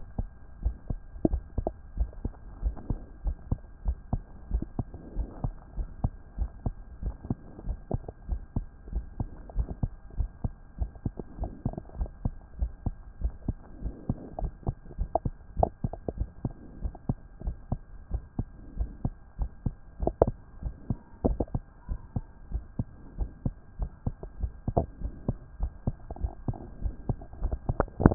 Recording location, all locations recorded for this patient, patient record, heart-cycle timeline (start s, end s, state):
aortic valve (AV)
aortic valve (AV)+pulmonary valve (PV)+tricuspid valve (TV)+mitral valve (MV)
#Age: Child
#Sex: Male
#Height: 131.0 cm
#Weight: 32.5 kg
#Pregnancy status: False
#Murmur: Absent
#Murmur locations: nan
#Most audible location: nan
#Systolic murmur timing: nan
#Systolic murmur shape: nan
#Systolic murmur grading: nan
#Systolic murmur pitch: nan
#Systolic murmur quality: nan
#Diastolic murmur timing: nan
#Diastolic murmur shape: nan
#Diastolic murmur grading: nan
#Diastolic murmur pitch: nan
#Diastolic murmur quality: nan
#Outcome: Abnormal
#Campaign: 2014 screening campaign
0.00	0.47	unannotated
0.47	0.62	diastole
0.62	0.76	S1
0.76	0.88	systole
0.88	1.00	S2
1.00	1.28	diastole
1.28	1.42	S1
1.42	1.58	systole
1.58	1.68	S2
1.68	1.96	diastole
1.96	2.10	S1
2.10	2.24	systole
2.24	2.32	S2
2.32	2.62	diastole
2.62	2.76	S1
2.76	2.88	systole
2.88	3.00	S2
3.00	3.24	diastole
3.24	3.36	S1
3.36	3.50	systole
3.50	3.58	S2
3.58	3.86	diastole
3.86	3.98	S1
3.98	4.12	systole
4.12	4.22	S2
4.22	4.52	diastole
4.52	4.64	S1
4.64	4.78	systole
4.78	4.86	S2
4.86	5.16	diastole
5.16	5.28	S1
5.28	5.42	systole
5.42	5.54	S2
5.54	5.76	diastole
5.76	5.88	S1
5.88	6.02	systole
6.02	6.12	S2
6.12	6.38	diastole
6.38	6.50	S1
6.50	6.64	systole
6.64	6.74	S2
6.74	7.04	diastole
7.04	7.14	S1
7.14	7.28	systole
7.28	7.38	S2
7.38	7.66	diastole
7.66	7.78	S1
7.78	7.92	systole
7.92	8.02	S2
8.02	8.28	diastole
8.28	8.42	S1
8.42	8.56	systole
8.56	8.66	S2
8.66	8.92	diastole
8.92	9.04	S1
9.04	9.18	systole
9.18	9.28	S2
9.28	9.56	diastole
9.56	9.68	S1
9.68	9.82	systole
9.82	9.92	S2
9.92	10.18	diastole
10.18	10.30	S1
10.30	10.42	systole
10.42	10.52	S2
10.52	10.78	diastole
10.78	10.90	S1
10.90	11.04	systole
11.04	11.14	S2
11.14	11.40	diastole
11.40	11.50	S1
11.50	11.64	systole
11.64	11.74	S2
11.74	11.98	diastole
11.98	12.10	S1
12.10	12.24	systole
12.24	12.34	S2
12.34	12.60	diastole
12.60	12.72	S1
12.72	12.84	systole
12.84	12.94	S2
12.94	13.22	diastole
13.22	13.34	S1
13.34	13.46	systole
13.46	13.56	S2
13.56	13.82	diastole
13.82	13.94	S1
13.94	14.08	systole
14.08	14.18	S2
14.18	14.40	diastole
14.40	14.52	S1
14.52	14.66	systole
14.66	14.76	S2
14.76	14.98	diastole
14.98	15.10	S1
15.10	15.24	systole
15.24	15.34	S2
15.34	15.58	diastole
15.58	15.70	S1
15.70	15.82	systole
15.82	15.92	S2
15.92	16.18	diastole
16.18	16.28	S1
16.28	16.44	systole
16.44	16.54	S2
16.54	16.82	diastole
16.82	16.92	S1
16.92	17.08	systole
17.08	17.18	S2
17.18	17.44	diastole
17.44	17.56	S1
17.56	17.70	systole
17.70	17.80	S2
17.80	18.12	diastole
18.12	18.22	S1
18.22	18.38	systole
18.38	18.46	S2
18.46	18.78	diastole
18.78	18.90	S1
18.90	19.04	systole
19.04	19.14	S2
19.14	19.40	diastole
19.40	19.50	S1
19.50	19.64	systole
19.64	19.74	S2
19.74	20.00	diastole
20.00	20.14	S1
20.14	20.24	systole
20.24	20.34	S2
20.34	20.62	diastole
20.62	20.74	S1
20.74	20.88	systole
20.88	20.98	S2
20.98	21.24	diastole
21.24	21.38	S1
21.38	21.54	systole
21.54	21.62	S2
21.62	21.90	diastole
21.90	22.00	S1
22.00	22.14	systole
22.14	22.24	S2
22.24	22.52	diastole
22.52	22.64	S1
22.64	22.78	systole
22.78	22.86	S2
22.86	23.18	diastole
23.18	23.30	S1
23.30	23.44	systole
23.44	23.54	S2
23.54	23.80	diastole
23.80	23.90	S1
23.90	24.06	systole
24.06	24.14	S2
24.14	24.40	diastole
24.40	24.52	S1
24.52	24.74	systole
24.74	24.86	S2
24.86	25.02	diastole
25.02	25.12	S1
25.12	25.28	systole
25.28	25.36	S2
25.36	25.60	diastole
25.60	25.72	S1
25.72	25.86	systole
25.86	25.96	S2
25.96	26.22	diastole
26.22	26.32	S1
26.32	26.46	systole
26.46	26.56	S2
26.56	26.82	diastole
26.82	26.94	S1
26.94	27.08	systole
27.08	27.16	S2
27.16	27.42	diastole
27.42	28.14	unannotated